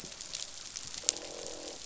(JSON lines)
{"label": "biophony, croak", "recorder": "SoundTrap 500"}